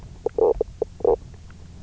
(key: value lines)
label: biophony, knock croak
recorder: SoundTrap 300